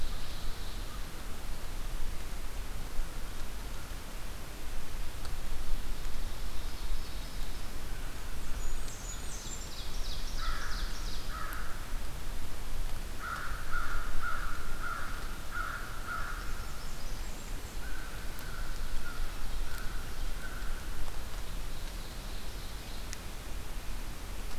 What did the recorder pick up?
Ovenbird, Blackburnian Warbler, American Crow